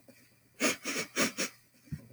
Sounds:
Sniff